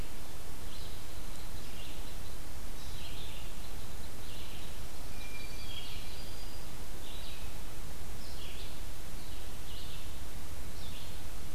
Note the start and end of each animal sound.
0.5s-11.2s: Red-eyed Vireo (Vireo olivaceus)
4.9s-6.7s: Black-throated Green Warbler (Setophaga virens)
5.1s-6.2s: Hermit Thrush (Catharus guttatus)

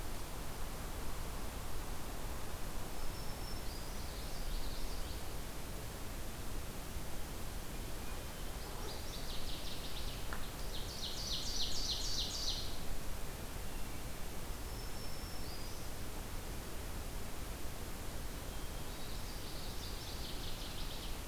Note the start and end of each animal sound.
2.8s-4.1s: Black-throated Green Warbler (Setophaga virens)
3.9s-5.3s: Common Yellowthroat (Geothlypis trichas)
7.7s-9.0s: Hermit Thrush (Catharus guttatus)
8.4s-10.2s: Northern Waterthrush (Parkesia noveboracensis)
10.5s-12.8s: Ovenbird (Seiurus aurocapilla)
13.4s-14.4s: Hermit Thrush (Catharus guttatus)
14.4s-16.0s: Black-throated Green Warbler (Setophaga virens)
18.7s-20.1s: Common Yellowthroat (Geothlypis trichas)
19.5s-21.2s: Northern Waterthrush (Parkesia noveboracensis)

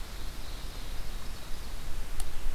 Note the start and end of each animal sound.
0.0s-1.9s: Ovenbird (Seiurus aurocapilla)

